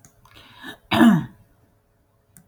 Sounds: Throat clearing